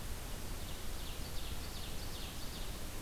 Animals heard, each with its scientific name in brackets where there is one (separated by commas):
Ovenbird (Seiurus aurocapilla)